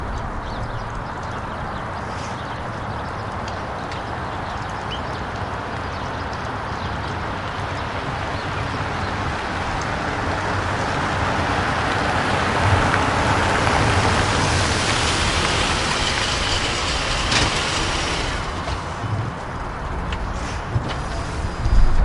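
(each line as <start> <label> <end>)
0.0 Car approaching from a distance and parking. 18.9
19.0 An engine of a car is being turned off after parking. 22.0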